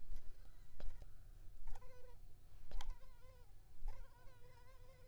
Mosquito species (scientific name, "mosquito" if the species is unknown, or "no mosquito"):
Culex pipiens complex